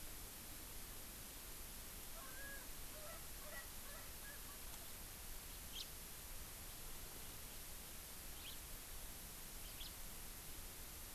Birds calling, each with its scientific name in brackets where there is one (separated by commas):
House Finch (Haemorhous mexicanus), Erckel's Francolin (Pternistis erckelii)